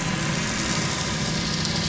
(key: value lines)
label: anthrophony, boat engine
recorder: SoundTrap 500